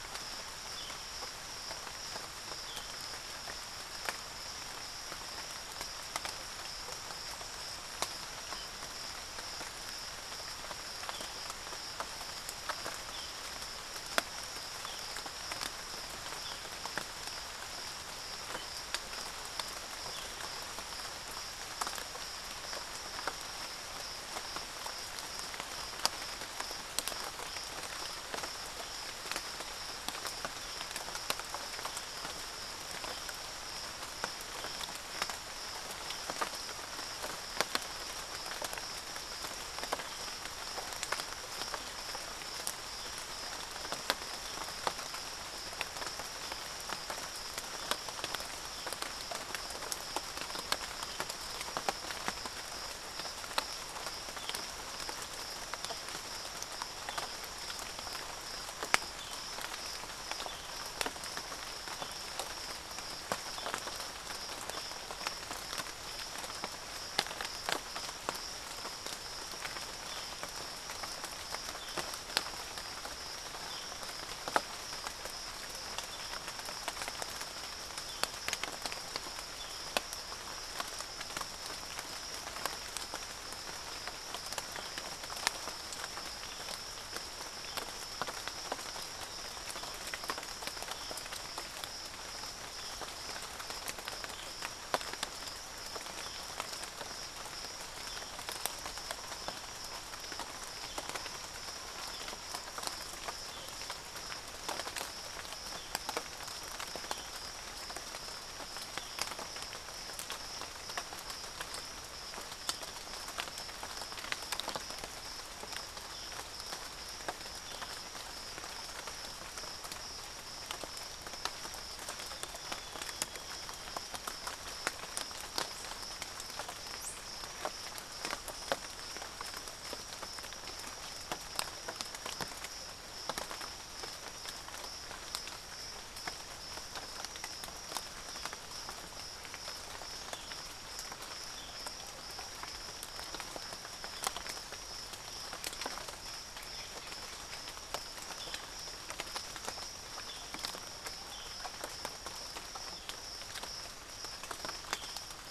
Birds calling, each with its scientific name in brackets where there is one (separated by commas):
Chestnut-winged Foliage-gleaner (Dendroma erythroptera)